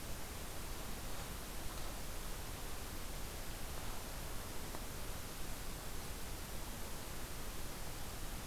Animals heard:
forest ambience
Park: Katahdin Woods and Waters National Monument